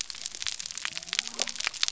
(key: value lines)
label: biophony
recorder: SoundTrap 300